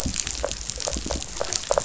{"label": "biophony", "recorder": "SoundTrap 500"}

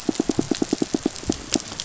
{"label": "biophony, pulse", "recorder": "SoundTrap 500"}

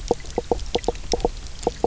{"label": "biophony, knock croak", "recorder": "SoundTrap 300"}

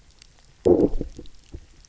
{"label": "biophony, low growl", "recorder": "SoundTrap 300"}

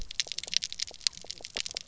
{"label": "biophony, pulse", "recorder": "SoundTrap 300"}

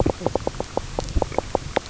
{"label": "biophony, knock croak", "recorder": "SoundTrap 300"}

